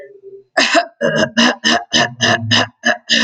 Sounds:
Throat clearing